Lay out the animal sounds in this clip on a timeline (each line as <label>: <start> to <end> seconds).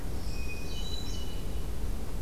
Northern Parula (Setophaga americana): 0.0 to 1.3 seconds
Hermit Thrush (Catharus guttatus): 0.1 to 1.8 seconds